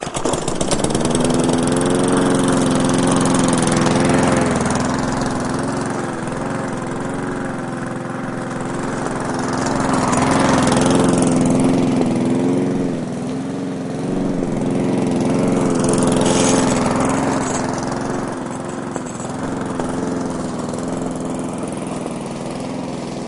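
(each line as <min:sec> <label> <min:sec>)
0:00.3 A lawnmower is running loudly and mechanically outdoors. 0:23.3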